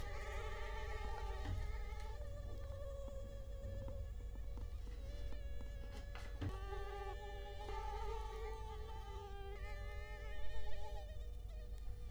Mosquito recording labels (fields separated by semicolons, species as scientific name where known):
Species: Culex quinquefasciatus; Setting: cup